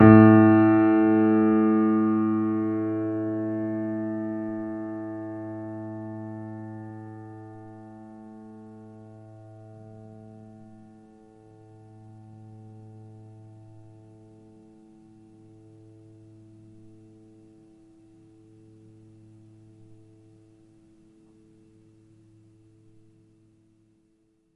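0.0s A low piano note decays. 24.6s

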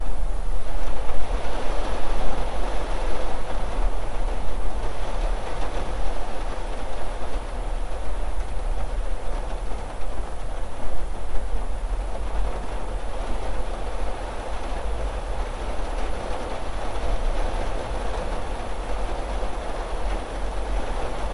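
0.0s Rain falling continuously as raindrops splash on surfaces. 21.3s

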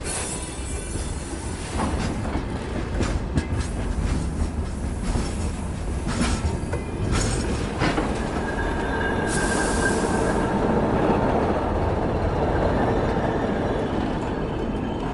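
0.0s Train sounds. 15.1s
9.3s The train is depressurizing. 10.3s

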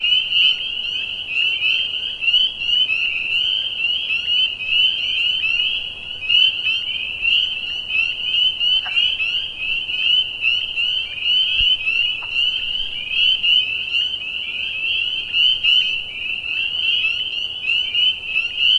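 0.0s A bird chirps rhythmically in the distance. 18.8s

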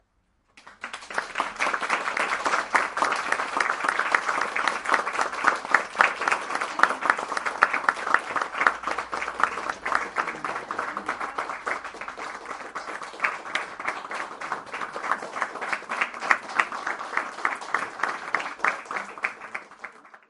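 0.7s Clapping begins nearby. 2.2s
2.3s Clapping in a steady pattern nearby. 8.9s
9.0s Clapping nearby fading away. 12.8s
13.0s Clapping in a steady pattern nearby. 15.7s
15.9s Clapping nearby fading away. 19.7s

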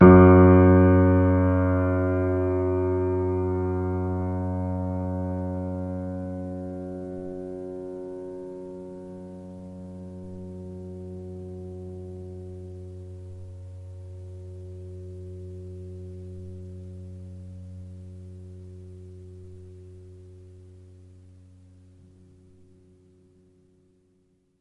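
0.0s A piano note sounds once and fades away. 24.6s

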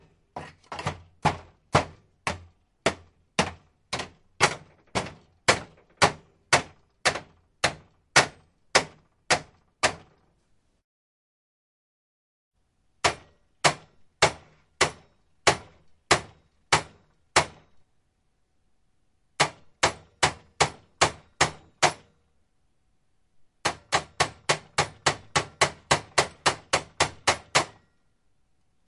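0.0s Steady periodic thumps or claps. 10.2s
0.0s Sounds of blows on a flat surface. 28.9s
12.8s Steady periodic thumps or claps. 17.8s
19.2s A knife hitting a surface repeatedly. 22.4s
19.2s Fast, clear periodic strokes. 22.4s
23.4s Rapid clapping or banging sounds occurring consecutively. 28.1s

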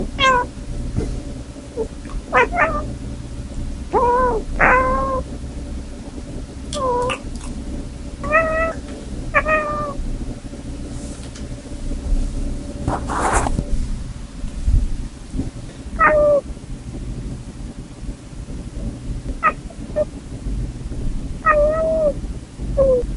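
0.0s A cat meows. 10.5s
11.6s A microphone is being adjusted. 14.1s
15.8s A cat meows. 16.6s
19.4s A cat makes sounds. 23.2s

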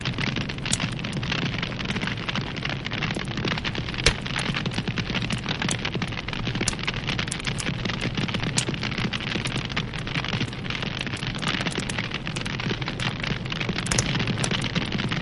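0.0s Fire crackles loudly. 15.2s

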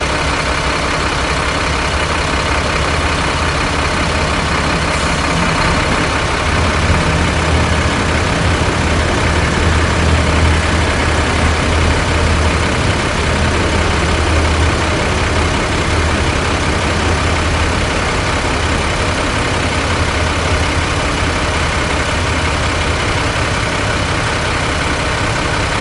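0.3s Continuous mechanical metallic engine noise from a truck. 25.4s

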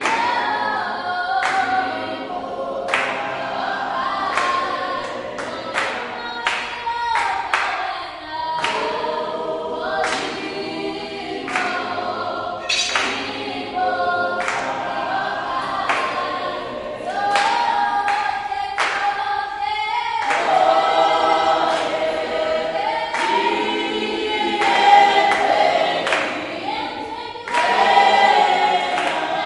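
0.0s A crowd claps rhythmically to music. 29.5s
0.0s People sing rhythmically and loudly. 29.5s

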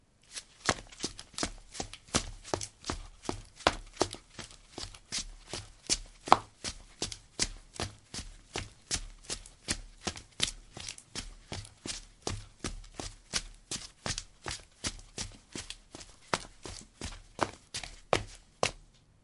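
0.0s Footsteps at a medium jogging pace. 18.8s

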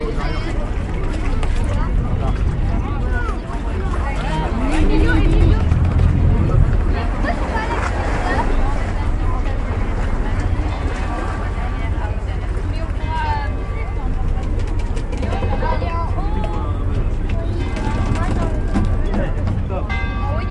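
0.0s People speaking outdoors. 20.5s
4.5s Motor starting loudly and then decreasing in volume. 7.4s
10.7s A church bell rings rhythmically. 20.5s

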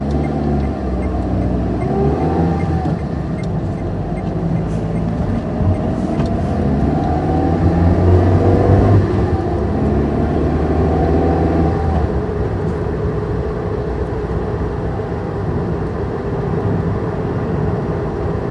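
0.0s The sound of driving a car from inside the car. 18.5s
0.2s Multiple blinking sounds of a turn signal overlapping the engine sound of a car. 6.8s

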